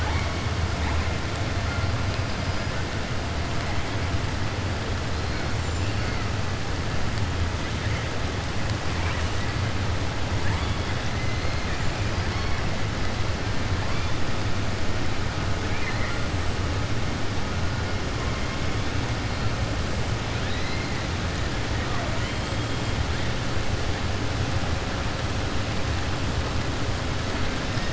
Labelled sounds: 15.6	16.2	killer whale, southern resident, 1.4 to 2.6 kHz

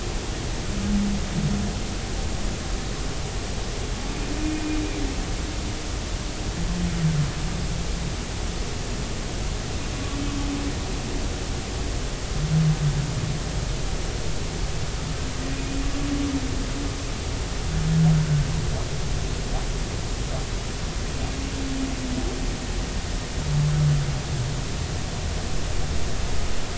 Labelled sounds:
15.5	15.8	humpback whale, 2.4 to 2.5 kHz

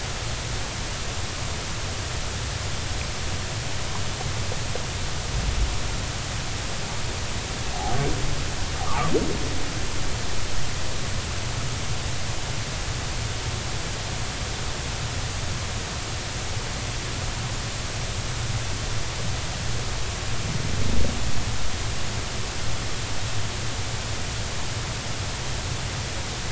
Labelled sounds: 8.9	9.1	humpback whale, 1.1 to 1.3 kHz

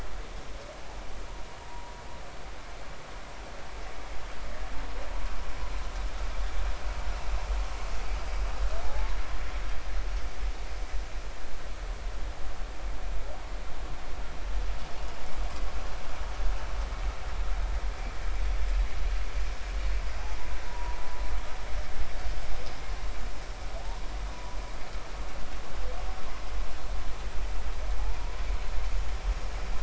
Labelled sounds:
1.6	1.9	humpback whale, 0.86 to 1.0 kHz
8.8	9.1	humpback whale, 0.80 to 0.93 kHz
20.7	21.0	humpback whale, 0.86 to 1.0 kHz
24.3	24.6	humpback whale, 0.93 to 1.0 kHz

